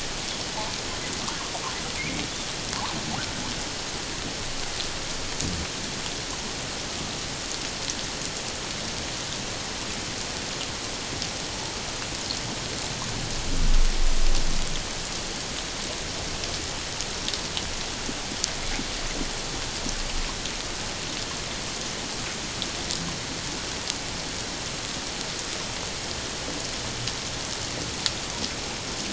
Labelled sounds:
2.0	2.2	humpback whale, 2.1 to 2.5 kHz

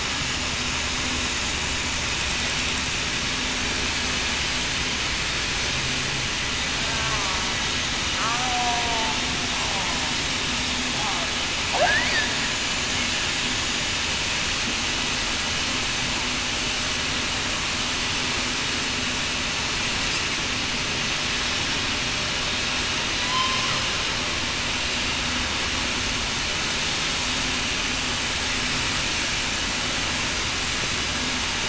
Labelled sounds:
7.0	7.4	killer whale, southern resident, 0.91 to 1.1 kHz
8.2	9.1	killer whale, southern resident, 0.63 to 0.82 kHz
23.2	23.6	killer whale, southern resident, 0.96 to 1.1 kHz

